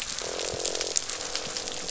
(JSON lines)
{"label": "biophony, croak", "recorder": "SoundTrap 500"}